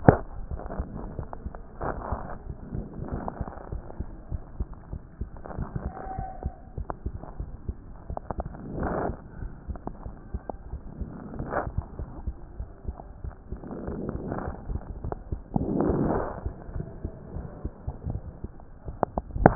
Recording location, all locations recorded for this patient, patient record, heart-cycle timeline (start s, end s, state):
mitral valve (MV)
aortic valve (AV)+pulmonary valve (PV)+tricuspid valve (TV)+mitral valve (MV)
#Age: Child
#Sex: Male
#Height: 103.0 cm
#Weight: 15.4 kg
#Pregnancy status: False
#Murmur: Absent
#Murmur locations: nan
#Most audible location: nan
#Systolic murmur timing: nan
#Systolic murmur shape: nan
#Systolic murmur grading: nan
#Systolic murmur pitch: nan
#Systolic murmur quality: nan
#Diastolic murmur timing: nan
#Diastolic murmur shape: nan
#Diastolic murmur grading: nan
#Diastolic murmur pitch: nan
#Diastolic murmur quality: nan
#Outcome: Normal
#Campaign: 2014 screening campaign
0.00	3.61	unannotated
3.61	3.72	diastole
3.72	3.82	S1
3.82	3.98	systole
3.98	4.06	S2
4.06	4.30	diastole
4.30	4.42	S1
4.42	4.58	systole
4.58	4.68	S2
4.68	4.92	diastole
4.92	5.02	S1
5.02	5.20	systole
5.20	5.30	S2
5.30	5.56	diastole
5.56	5.68	S1
5.68	5.84	systole
5.84	5.92	S2
5.92	6.16	diastole
6.16	6.28	S1
6.28	6.44	systole
6.44	6.54	S2
6.54	6.78	diastole
6.78	6.88	S1
6.88	7.04	systole
7.04	7.14	S2
7.14	7.38	diastole
7.38	7.50	S1
7.50	7.68	systole
7.68	7.76	S2
7.76	8.08	diastole
8.08	8.18	S1
8.18	8.36	systole
8.36	8.46	S2
8.46	8.76	diastole
8.76	8.92	S1
8.92	9.04	systole
9.04	9.14	S2
9.14	9.40	diastole
9.40	9.52	S1
9.52	9.68	systole
9.68	9.78	S2
9.78	10.06	diastole
10.06	10.16	S1
10.16	10.32	systole
10.32	19.55	unannotated